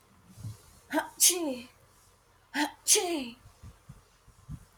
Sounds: Sneeze